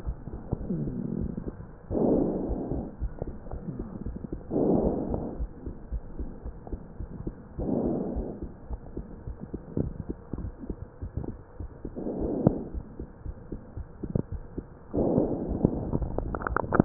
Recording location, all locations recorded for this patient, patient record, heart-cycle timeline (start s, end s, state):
pulmonary valve (PV)
aortic valve (AV)+pulmonary valve (PV)+tricuspid valve (TV)+mitral valve (MV)
#Age: Child
#Sex: Female
#Height: 103.0 cm
#Weight: 18.1 kg
#Pregnancy status: False
#Murmur: Absent
#Murmur locations: nan
#Most audible location: nan
#Systolic murmur timing: nan
#Systolic murmur shape: nan
#Systolic murmur grading: nan
#Systolic murmur pitch: nan
#Systolic murmur quality: nan
#Diastolic murmur timing: nan
#Diastolic murmur shape: nan
#Diastolic murmur grading: nan
#Diastolic murmur pitch: nan
#Diastolic murmur quality: nan
#Outcome: Normal
#Campaign: 2015 screening campaign
0.00	5.20	unannotated
5.20	5.36	diastole
5.36	5.52	S1
5.52	5.62	systole
5.62	5.72	S2
5.72	5.90	diastole
5.90	6.04	S1
6.04	6.18	systole
6.18	6.30	S2
6.30	6.46	diastole
6.46	6.58	S1
6.58	6.70	systole
6.70	6.80	S2
6.80	6.98	diastole
6.98	7.10	S1
7.10	7.22	systole
7.22	7.34	S2
7.34	7.56	diastole
7.56	7.69	S1
7.69	7.78	systole
7.78	7.92	S2
7.92	8.12	diastole
8.12	8.26	S1
8.26	8.40	systole
8.40	8.52	S2
8.52	8.69	diastole
8.69	8.84	S1
8.84	8.96	systole
8.96	9.06	S2
9.06	9.28	diastole
9.28	9.38	S1
9.38	9.52	systole
9.52	9.62	S2
9.62	9.84	diastole
9.84	9.94	S1
9.94	10.08	systole
10.08	10.18	S2
10.18	10.40	diastole
10.40	10.54	S1
10.54	10.68	systole
10.68	10.80	S2
10.80	11.01	diastole
11.01	11.14	S1
11.14	11.26	systole
11.26	11.36	S2
11.36	11.58	diastole
11.58	11.72	S1
11.72	11.82	systole
11.82	11.92	S2
11.92	12.16	diastole
12.16	12.32	S1
12.32	12.44	systole
12.44	12.56	S2
12.56	12.73	diastole
12.73	12.88	S1
12.88	12.98	systole
12.98	13.10	S2
13.10	13.24	diastole
13.24	13.36	S1
13.36	13.48	systole
13.48	13.59	S2
13.59	13.74	diastole
13.74	13.88	S1
13.88	14.01	systole
14.01	16.85	unannotated